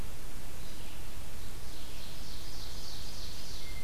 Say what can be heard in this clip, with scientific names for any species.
Vireo olivaceus, Seiurus aurocapilla